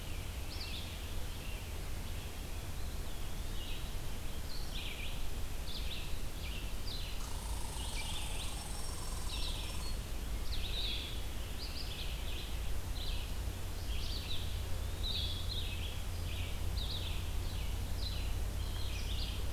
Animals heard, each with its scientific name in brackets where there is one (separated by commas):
Red Squirrel (Tamiasciurus hudsonicus), Red-eyed Vireo (Vireo olivaceus), Blue-headed Vireo (Vireo solitarius), Black-throated Green Warbler (Setophaga virens), Eastern Wood-Pewee (Contopus virens)